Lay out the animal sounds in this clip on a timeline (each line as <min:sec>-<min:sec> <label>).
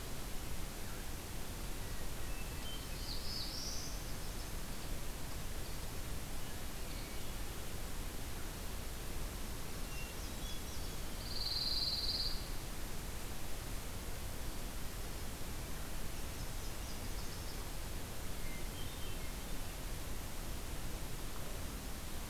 0:01.6-0:02.9 Hermit Thrush (Catharus guttatus)
0:02.7-0:03.9 Black-throated Blue Warbler (Setophaga caerulescens)
0:03.4-0:04.9 Blackburnian Warbler (Setophaga fusca)
0:05.6-0:07.6 American Robin (Turdus migratorius)
0:09.7-0:11.1 Hermit Thrush (Catharus guttatus)
0:09.9-0:11.5 Blackburnian Warbler (Setophaga fusca)
0:11.0-0:12.5 Pine Warbler (Setophaga pinus)
0:15.8-0:17.8 Nashville Warbler (Leiothlypis ruficapilla)
0:18.3-0:19.5 Hermit Thrush (Catharus guttatus)